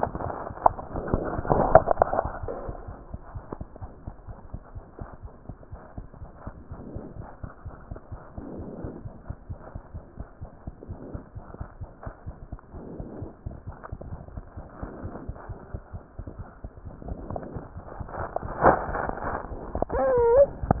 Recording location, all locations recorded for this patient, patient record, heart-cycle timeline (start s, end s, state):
aortic valve (AV)
aortic valve (AV)+mitral valve (MV)
#Age: Child
#Sex: Female
#Height: 74.0 cm
#Weight: 8.5 kg
#Pregnancy status: False
#Murmur: Present
#Murmur locations: mitral valve (MV)
#Most audible location: mitral valve (MV)
#Systolic murmur timing: Holosystolic
#Systolic murmur shape: Plateau
#Systolic murmur grading: I/VI
#Systolic murmur pitch: Low
#Systolic murmur quality: Blowing
#Diastolic murmur timing: nan
#Diastolic murmur shape: nan
#Diastolic murmur grading: nan
#Diastolic murmur pitch: nan
#Diastolic murmur quality: nan
#Outcome: Abnormal
#Campaign: 2015 screening campaign
0.00	3.92	unannotated
3.92	4.04	diastole
4.04	4.14	S1
4.14	4.26	systole
4.26	4.38	S2
4.38	4.52	diastole
4.52	4.62	S1
4.62	4.74	systole
4.74	4.84	S2
4.84	5.00	diastole
5.00	5.10	S1
5.10	5.22	systole
5.22	5.32	S2
5.32	5.48	diastole
5.48	5.56	S1
5.56	5.70	systole
5.70	5.80	S2
5.80	5.96	diastole
5.96	6.06	S1
6.06	6.20	systole
6.20	6.30	S2
6.30	6.44	diastole
6.44	6.54	S1
6.54	6.66	systole
6.66	6.76	S2
6.76	6.92	diastole
6.92	7.02	S1
7.02	7.10	systole
7.10	7.18	S2
7.18	7.38	diastole
7.38	7.50	S1
7.50	7.64	systole
7.64	7.74	S2
7.74	7.90	diastole
7.90	7.98	S1
7.98	8.10	systole
8.10	8.20	S2
8.20	8.36	diastole
8.36	8.44	S1
8.44	8.58	systole
8.58	8.68	S2
8.68	8.82	diastole
8.82	8.94	S1
8.94	9.04	systole
9.04	9.14	S2
9.14	9.28	diastole
9.28	9.36	S1
9.36	9.48	systole
9.48	9.58	S2
9.58	9.72	diastole
9.72	9.82	S1
9.82	9.92	systole
9.92	10.04	S2
10.04	10.18	diastole
10.18	10.28	S1
10.28	10.40	systole
10.40	10.50	S2
10.50	10.66	diastole
10.66	10.76	S1
10.76	10.88	systole
10.88	10.96	S2
10.96	11.12	diastole
11.12	11.26	S1
11.26	11.34	systole
11.34	11.44	S2
11.44	11.58	diastole
11.58	11.70	S1
11.70	11.80	systole
11.80	11.90	S2
11.90	12.04	diastole
12.04	12.14	S1
12.14	12.26	systole
12.26	12.36	S2
12.36	12.50	diastole
12.50	12.58	S1
12.58	20.80	unannotated